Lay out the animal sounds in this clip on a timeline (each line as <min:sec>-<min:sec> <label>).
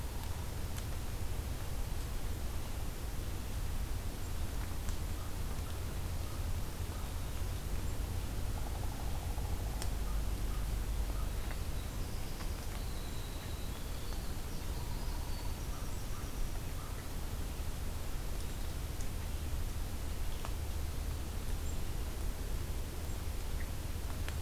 0:05.1-0:07.3 American Crow (Corvus brachyrhynchos)
0:11.4-0:16.8 Winter Wren (Troglodytes hiemalis)
0:15.6-0:17.0 American Crow (Corvus brachyrhynchos)